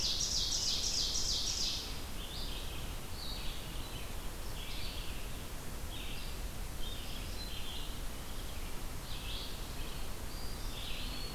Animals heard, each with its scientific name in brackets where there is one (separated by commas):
Black-throated Green Warbler (Setophaga virens), Ovenbird (Seiurus aurocapilla), Eastern Wood-Pewee (Contopus virens), Red-eyed Vireo (Vireo olivaceus)